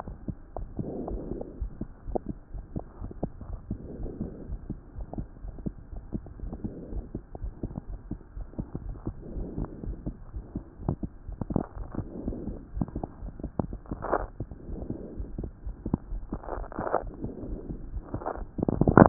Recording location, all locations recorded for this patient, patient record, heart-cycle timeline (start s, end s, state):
aortic valve (AV)
aortic valve (AV)+pulmonary valve (PV)+tricuspid valve (TV)+mitral valve (MV)
#Age: Child
#Sex: Female
#Height: 138.0 cm
#Weight: 37.1 kg
#Pregnancy status: False
#Murmur: Absent
#Murmur locations: nan
#Most audible location: nan
#Systolic murmur timing: nan
#Systolic murmur shape: nan
#Systolic murmur grading: nan
#Systolic murmur pitch: nan
#Systolic murmur quality: nan
#Diastolic murmur timing: nan
#Diastolic murmur shape: nan
#Diastolic murmur grading: nan
#Diastolic murmur pitch: nan
#Diastolic murmur quality: nan
#Outcome: Normal
#Campaign: 2015 screening campaign
0.00	1.58	unannotated
1.58	1.72	S1
1.72	1.79	systole
1.79	1.90	S2
1.90	2.08	diastole
2.08	2.20	S1
2.20	2.26	systole
2.26	2.36	S2
2.36	2.53	diastole
2.53	2.64	S1
2.64	2.72	systole
2.72	2.82	S2
2.82	3.00	diastole
3.00	3.12	S1
3.12	3.18	systole
3.18	3.30	S2
3.30	3.46	diastole
3.46	3.60	S1
3.60	3.68	systole
3.68	3.78	S2
3.78	4.00	diastole
4.00	4.11	S1
4.11	4.19	systole
4.19	4.32	S2
4.32	4.50	diastole
4.50	4.60	S1
4.60	4.68	systole
4.68	4.78	S2
4.78	4.98	diastole
4.98	5.08	S1
5.08	5.18	systole
5.18	5.28	S2
5.28	5.44	diastole
5.44	5.54	S1
5.54	5.61	systole
5.61	5.74	S2
5.74	5.92	diastole
5.92	6.04	S1
6.04	6.12	systole
6.12	6.22	S2
6.22	6.40	diastole
6.40	6.54	S1
6.54	6.62	systole
6.62	6.72	S2
6.72	6.90	diastole
6.90	7.06	S1
7.06	7.14	systole
7.14	7.24	S2
7.24	7.42	diastole
7.42	7.54	S1
7.54	7.62	systole
7.62	7.72	S2
7.72	7.90	diastole
7.90	8.00	S1
8.00	8.10	systole
8.10	8.18	S2
8.18	8.36	diastole
8.36	8.48	S1
8.48	8.58	systole
8.58	8.66	S2
8.66	8.84	diastole
8.84	8.98	S1
8.98	9.06	systole
9.06	9.16	S2
9.16	9.34	diastole
9.34	9.48	S1
9.48	9.56	systole
9.56	9.70	S2
9.70	9.88	diastole
9.88	10.00	S1
10.00	10.06	systole
10.06	10.16	S2
10.16	10.34	diastole
10.34	10.44	S1
10.44	10.54	systole
10.54	10.62	S2
10.62	10.82	diastole
10.82	10.96	S1
10.96	11.02	systole
11.02	11.12	S2
11.12	11.28	diastole
11.28	11.40	S1
11.40	11.48	systole
11.48	11.60	S2
11.60	11.78	diastole
11.78	11.88	S1
11.88	11.98	systole
11.98	12.08	S2
12.08	12.24	diastole
12.24	12.38	S1
12.38	12.46	systole
12.46	12.56	S2
12.56	12.74	diastole
12.74	12.86	S1
12.86	12.94	systole
12.94	13.08	S2
13.08	13.24	diastole
13.24	13.34	S1
13.34	13.40	systole
13.40	13.50	S2
13.50	13.68	diastole
13.68	13.80	S1
13.80	13.90	systole
13.90	13.98	S2
13.98	14.14	diastole
14.14	14.30	S1
14.30	14.40	systole
14.40	14.50	S2
14.50	14.68	diastole
14.68	14.84	S1
14.84	14.90	systole
14.90	15.00	S2
15.00	15.18	diastole
15.18	15.30	S1
15.30	15.36	systole
15.36	15.50	S2
15.50	15.64	diastole
15.64	15.76	S1
15.76	15.84	systole
15.84	15.94	S2
15.94	16.10	diastole
16.10	19.09	unannotated